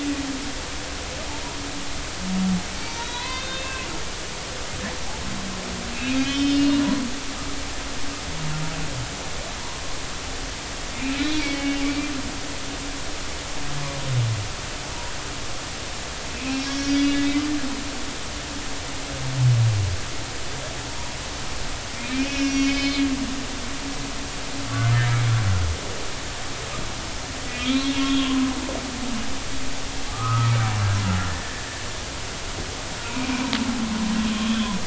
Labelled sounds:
2.8	3.9	humpback whale, 0.93 to 4.7 kHz
6.2	6.8	humpback whale, 2.8 to 5.4 kHz
10.9	12.1	humpback whale, 2.2 to 2.9 kHz
16.3	17.5	humpback whale, 2.0 to 5.7 kHz
22.1	23.1	humpback whale, 2.1 to 6.0 kHz
27.6	28.5	humpback whale, 0.96 to 4.3 kHz
30.1	31.7	humpback whale, 0.99 to 2.0 kHz
34.3	34.6	humpback whale, 1.0 to 1.2 kHz

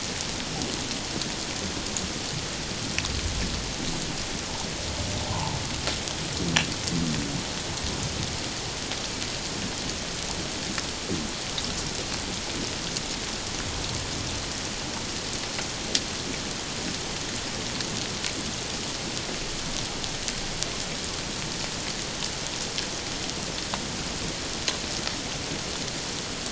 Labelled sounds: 5.3	5.6	humpback whale, 0.78 to 1.1 kHz

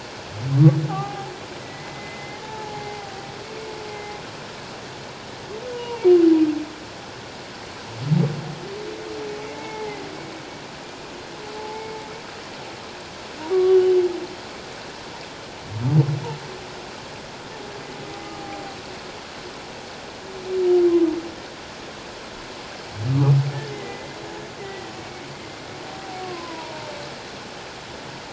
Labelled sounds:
0.9	1.3	humpback whale, 0.78 to 1.3 kHz
1.6	3.0	humpback whale, 0.78 to 2.2 kHz
3.9	4.1	humpback whale, 2.0 to 2.1 kHz
5.7	6.1	humpback whale, 0.84 to 2.9 kHz
9.4	10.0	humpback whale, 0.78 to 2.2 kHz
11.6	11.9	humpback whale, 0.78 to 0.94 kHz
13.5	13.8	humpback whale, 1.1 to 1.2 kHz
23.7	25.3	humpback whale, 1.9 to 2.3 kHz
26.2	26.9	humpback whale, 0.88 to 1.2 kHz

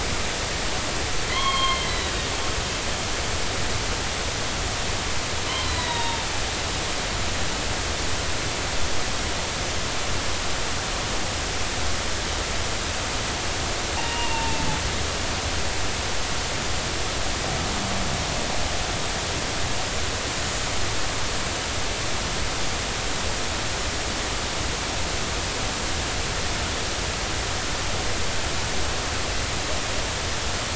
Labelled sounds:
1.3	2.1	killer whale, northern resident, G clan, 0.96 to 4.4 kHz
5.6	6.2	killer whale, northern resident, G clan, 0.83 to 4.1 kHz
13.9	14.6	killer whale, northern resident, G clan, 0.80 to 2.9 kHz

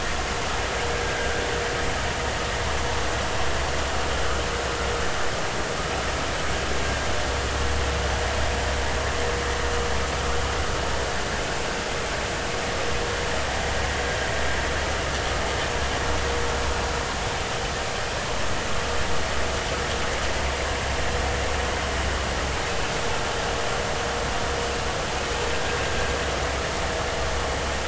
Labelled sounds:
1.1	1.3	vessel noise, 1.5 to 1.7 kHz

